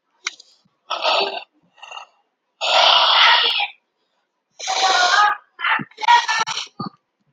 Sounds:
Sigh